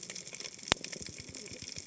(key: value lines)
label: biophony, cascading saw
recorder: HydroMoth